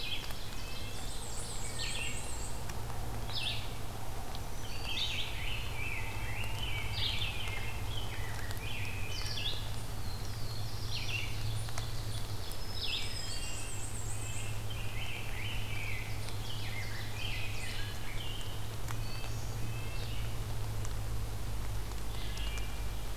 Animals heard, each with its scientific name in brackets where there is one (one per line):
Wood Thrush (Hylocichla mustelina)
Black-throated Green Warbler (Setophaga virens)
Red-eyed Vireo (Vireo olivaceus)
Red-breasted Nuthatch (Sitta canadensis)
Black-and-white Warbler (Mniotilta varia)
Rose-breasted Grosbeak (Pheucticus ludovicianus)
Black-throated Blue Warbler (Setophaga caerulescens)
Ovenbird (Seiurus aurocapilla)